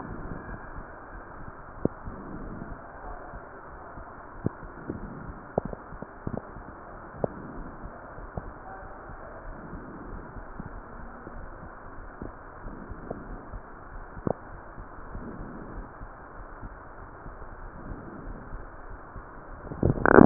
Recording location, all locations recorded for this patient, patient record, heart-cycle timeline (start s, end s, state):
aortic valve (AV)
aortic valve (AV)+pulmonary valve (PV)+tricuspid valve (TV)
#Age: nan
#Sex: Female
#Height: nan
#Weight: nan
#Pregnancy status: True
#Murmur: Absent
#Murmur locations: nan
#Most audible location: nan
#Systolic murmur timing: nan
#Systolic murmur shape: nan
#Systolic murmur grading: nan
#Systolic murmur pitch: nan
#Systolic murmur quality: nan
#Diastolic murmur timing: nan
#Diastolic murmur shape: nan
#Diastolic murmur grading: nan
#Diastolic murmur pitch: nan
#Diastolic murmur quality: nan
#Outcome: Normal
#Campaign: 2015 screening campaign
0.00	7.30	unannotated
7.30	7.55	diastole
7.55	7.63	S1
7.63	7.81	systole
7.81	7.90	S2
7.90	8.15	diastole
8.15	8.30	S1
8.30	8.43	systole
8.43	8.55	S2
8.55	8.80	diastole
8.80	8.92	S1
8.92	9.06	systole
9.06	9.15	S2
9.15	9.43	diastole
9.43	9.56	S1
9.56	9.70	systole
9.70	9.78	S2
9.78	10.09	diastole
10.09	10.23	S1
10.23	10.35	systole
10.35	10.43	S2
10.43	10.71	diastole
10.71	10.84	S1
10.84	10.96	systole
10.96	11.11	S2
11.11	11.34	diastole
11.34	11.50	S1
11.50	11.65	systole
11.65	11.79	S2
11.79	11.94	diastole
11.94	12.08	S1
12.08	12.20	systole
12.20	12.31	S2
12.31	12.63	diastole
12.63	12.79	S1
12.79	12.88	systole
12.88	12.97	S2
12.97	13.25	diastole
13.25	13.38	S1
13.38	13.48	systole
13.48	13.58	S2
13.58	20.26	unannotated